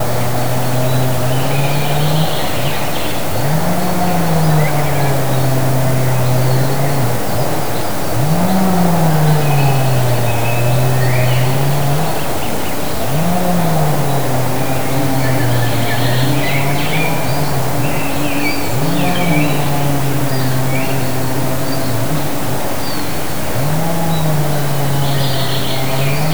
Were there more than just animals making noise?
yes